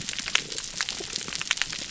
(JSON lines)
{"label": "biophony, damselfish", "recorder": "SoundTrap 300"}